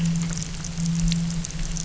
{"label": "anthrophony, boat engine", "recorder": "SoundTrap 300"}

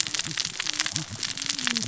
{"label": "biophony, cascading saw", "recorder": "SoundTrap 600 or HydroMoth"}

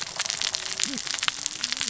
{"label": "biophony, cascading saw", "recorder": "SoundTrap 600 or HydroMoth"}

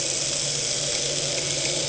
{"label": "anthrophony, boat engine", "recorder": "HydroMoth"}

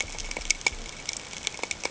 {"label": "ambient", "recorder": "HydroMoth"}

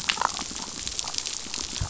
{"label": "biophony, damselfish", "recorder": "SoundTrap 500"}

